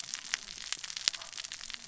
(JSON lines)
{"label": "biophony, cascading saw", "recorder": "SoundTrap 600 or HydroMoth"}